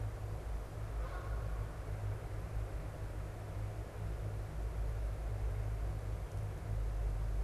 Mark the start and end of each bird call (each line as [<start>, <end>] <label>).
[0.00, 7.43] Canada Goose (Branta canadensis)